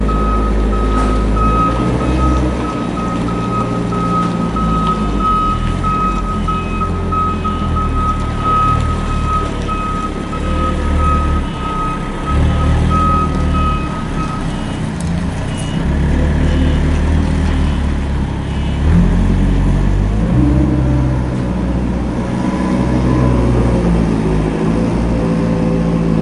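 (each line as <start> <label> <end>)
0.0 A forklift beeps loudly in a repeating pattern. 14.8
2.2 An engine hums quietly with a fading pattern. 5.2
5.2 An engine hums loudly in a steady pattern. 10.3
10.2 An engine hums loudly in a repeating pattern. 26.2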